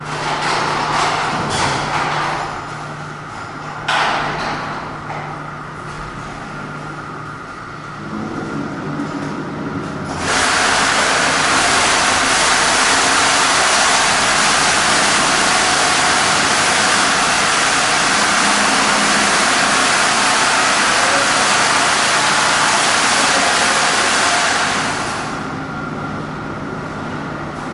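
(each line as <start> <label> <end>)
0.0 Mechanical hum with occasional tapping and general industrial activity sounds. 10.2
10.2 Loud, intense, and continuous mechanical noise. 27.7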